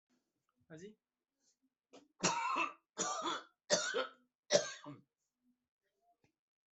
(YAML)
expert_labels:
- quality: good
  cough_type: dry
  dyspnea: false
  wheezing: false
  stridor: false
  choking: false
  congestion: false
  nothing: true
  diagnosis: healthy cough
  severity: pseudocough/healthy cough
age: 80
gender: female
respiratory_condition: false
fever_muscle_pain: false
status: symptomatic